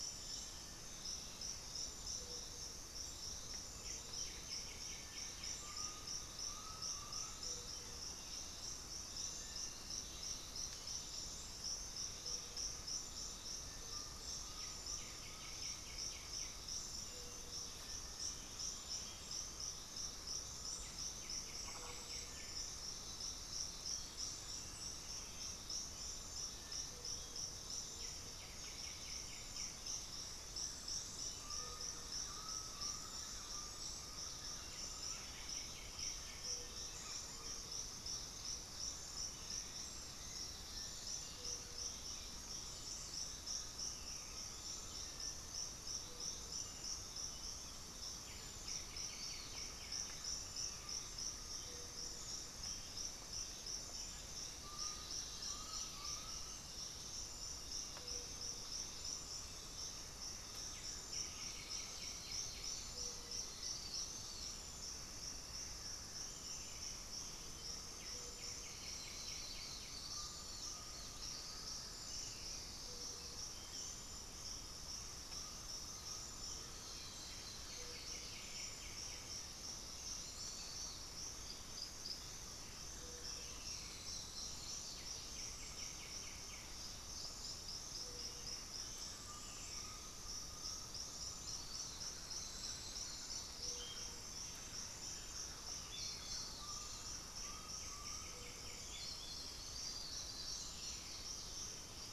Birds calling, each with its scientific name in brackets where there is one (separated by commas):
Bluish-fronted Jacamar (Galbula cyanescens), White-winged Becard (Pachyramphus polychopterus), Thrush-like Wren (Campylorhynchus turdinus), Black-throated Antbird (Myrmophylax atrothorax), Red-bellied Macaw (Orthopsittaca manilatus), Undulated Tinamou (Crypturellus undulatus), unidentified bird